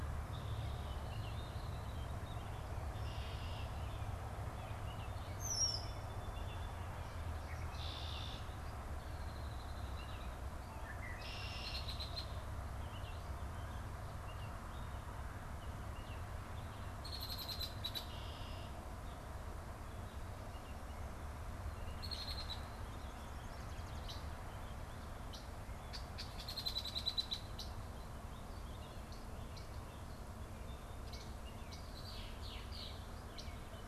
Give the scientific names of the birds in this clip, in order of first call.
Icterus galbula, Agelaius phoeniceus